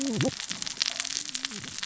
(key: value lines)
label: biophony, cascading saw
recorder: SoundTrap 600 or HydroMoth